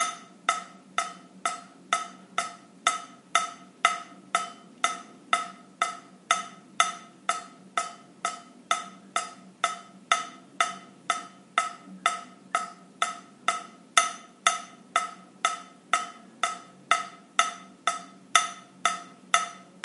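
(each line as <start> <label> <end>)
0.0 A tap is dripping rhythmically with a slight echo. 19.8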